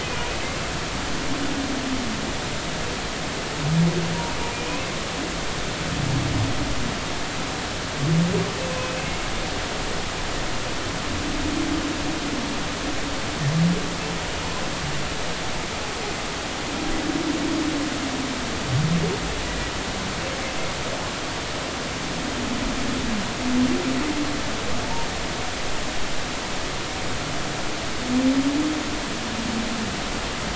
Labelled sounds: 8.7	9.1	humpback whale, 2.5 to 2.8 kHz

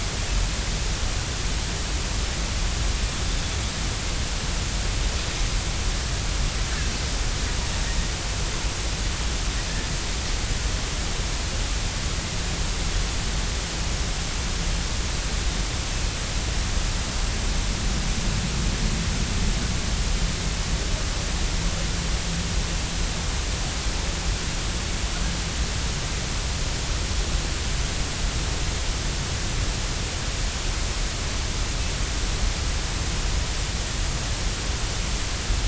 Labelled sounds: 6.7	6.9	Pacific white-sided dolphin, 1.5 to 1.8 kHz

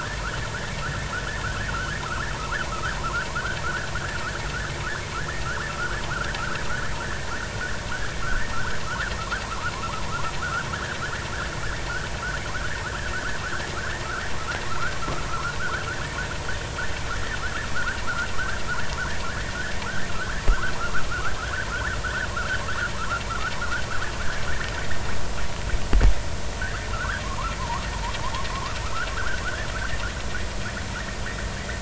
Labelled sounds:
1.7	2.0	vessel noise, 1.2 to 1.6 kHz
2.7	3.3	vessel noise, 0.80 to 1.9 kHz
3.6	3.9	vessel noise, 1.2 to 1.9 kHz
6.1	6.6	vessel noise, 1.2 to 2.0 kHz
8.5	8.8	vessel noise, 1.2 to 1.7 kHz
10.4	10.7	vessel noise, 1.2 to 1.7 kHz
12.5	12.8	vessel noise, 1.2 to 1.9 kHz
14.7	15.0	vessel noise, 0.90 to 1.6 kHz
15.3	16.2	vessel noise, 1.0 to 1.9 kHz
18.3	19.5	vessel noise, 1.1 to 2.0 kHz
20.1	20.7	vessel noise, 0.93 to 1.8 kHz
21.4	22.0	vessel noise, 1.2 to 1.9 kHz
23.0	23.5	vessel noise, 1.1 to 1.6 kHz
26.6	27.9	vessel noise, 0.83 to 1.9 kHz
28.5	29.4	vessel noise, 0.96 to 1.7 kHz
30.4	30.7	vessel noise, 1.3 to 1.8 kHz

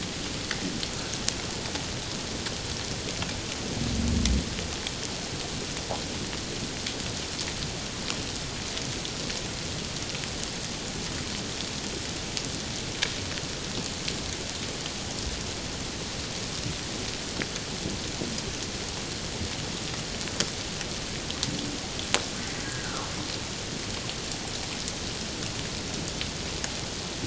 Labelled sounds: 22.6	23.1	humpback whale, 0.84 to 1.7 kHz

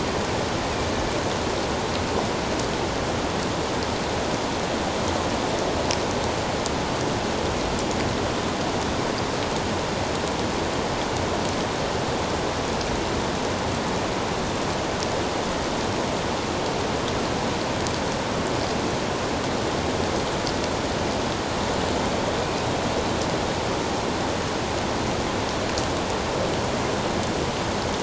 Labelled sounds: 22.4	22.7	killer whale, northern resident, A clan, AB subclan, 2.3 to 2.6 kHz

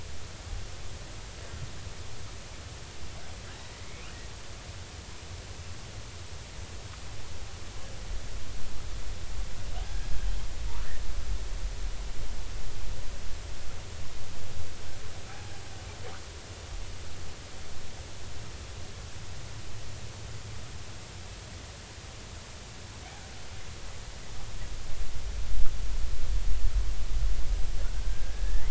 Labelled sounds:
3.5	4.1	killer whale, northern resident, G clan, 1.5 to 2.6 kHz
9.8	10.5	killer whale, northern resident, G clan, call N40, 1.6 to 3.3 kHz
28.0	28.6	killer whale, northern resident, G clan, call N40, 1.5 to 2.2 kHz

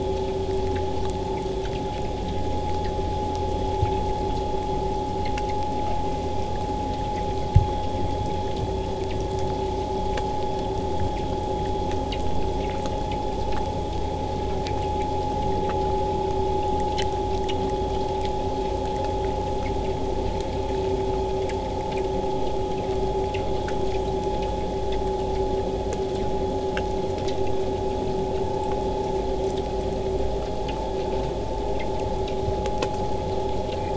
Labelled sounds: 5.8	6.6	killer whale, southern resident, J pod, call S04, 0.54 to 8.0 kHz

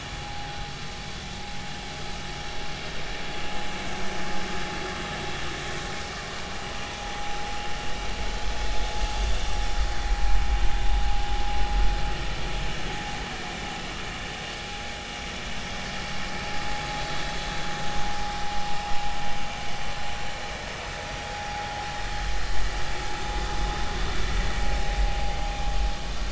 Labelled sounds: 18.7	19.0	vessel noise, 5.1 to 5.3 kHz

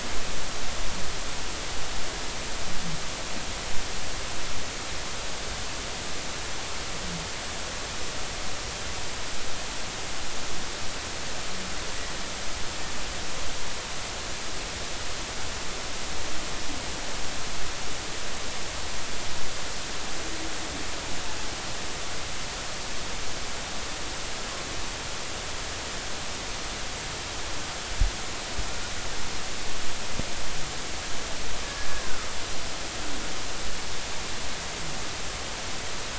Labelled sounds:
31.9	32.3	humpback whale, 1.2 to 1.7 kHz

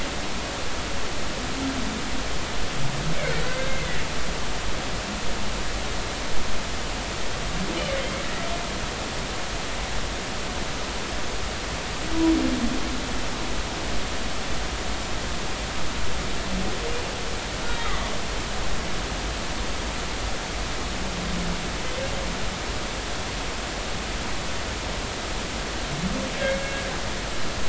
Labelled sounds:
3.4	3.7	humpback whale, 1.5 to 1.6 kHz
17.6	18.1	humpback whale, 1.1 to 3.9 kHz

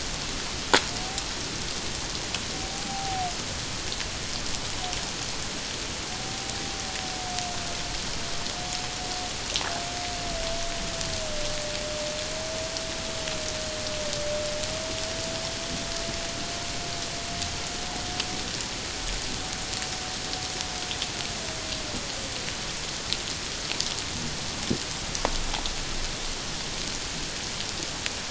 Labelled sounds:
2.5	3.3	humpback whale, 0.78 to 0.88 kHz
6.1	6.6	humpback whale, 0.78 to 0.81 kHz

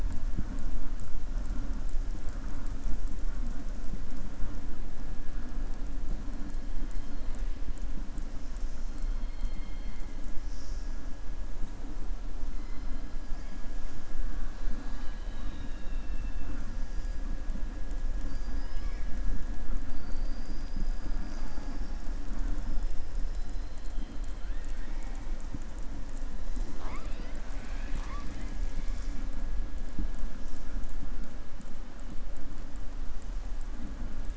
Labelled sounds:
9.1	10.1	killer whale, southern resident, 2.0 to 4.4 kHz
18.2	19.1	killer whale, southern resident, 1.0 to 5.8 kHz

